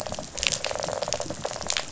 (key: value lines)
label: biophony, rattle response
recorder: SoundTrap 500